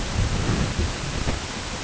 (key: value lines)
label: ambient
recorder: HydroMoth